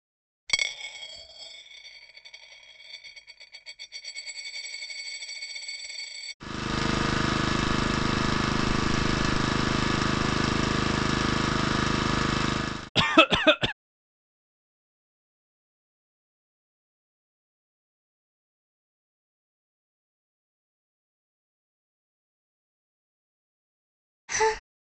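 First, a coin drops. After that, an engine idles. Then someone coughs. Finally, a person sighs.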